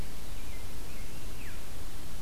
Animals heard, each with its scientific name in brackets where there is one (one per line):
American Robin (Turdus migratorius)